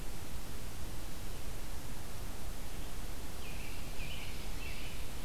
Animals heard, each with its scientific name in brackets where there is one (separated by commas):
American Robin (Turdus migratorius), Ovenbird (Seiurus aurocapilla)